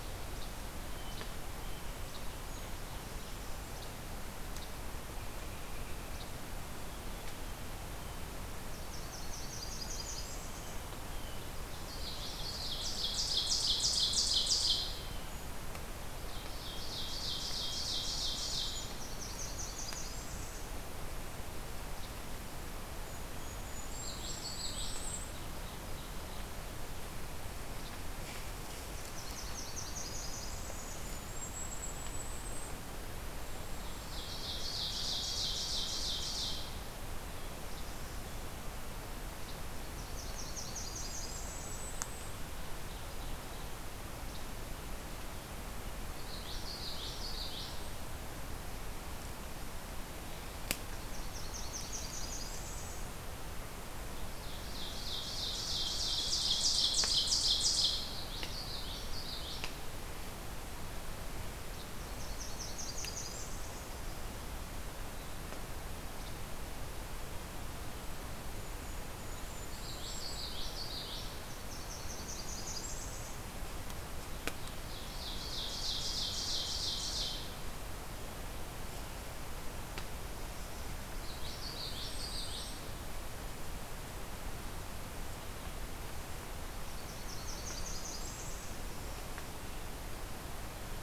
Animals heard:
Ovenbird (Seiurus aurocapilla), Blackburnian Warbler (Setophaga fusca), Common Yellowthroat (Geothlypis trichas), Least Flycatcher (Empidonax minimus), Golden-crowned Kinglet (Regulus satrapa)

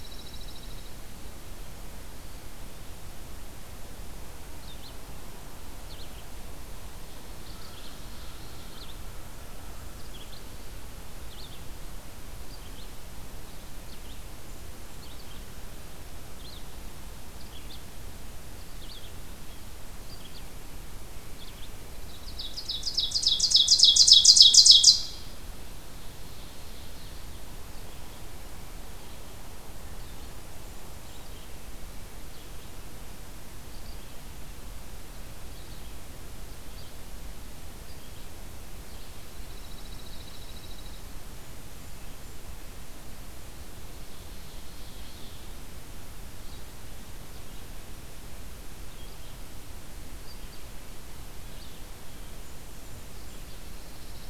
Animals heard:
Red-eyed Vireo (Vireo olivaceus), Pine Warbler (Setophaga pinus), Blackburnian Warbler (Setophaga fusca), Ovenbird (Seiurus aurocapilla)

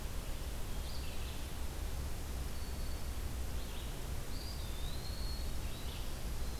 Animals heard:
Eastern Wood-Pewee (Contopus virens), Winter Wren (Troglodytes hiemalis), Red-eyed Vireo (Vireo olivaceus)

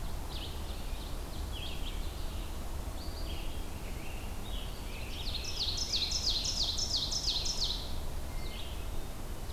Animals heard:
Red-eyed Vireo (Vireo olivaceus), Scarlet Tanager (Piranga olivacea), Ovenbird (Seiurus aurocapilla)

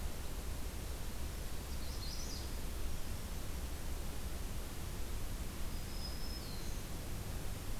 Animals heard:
Magnolia Warbler (Setophaga magnolia), Black-throated Green Warbler (Setophaga virens), Red Crossbill (Loxia curvirostra)

